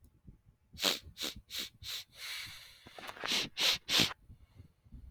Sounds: Sniff